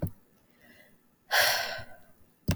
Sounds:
Sigh